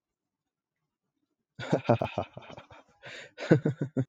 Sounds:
Laughter